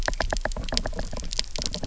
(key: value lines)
label: biophony, knock
recorder: SoundTrap 300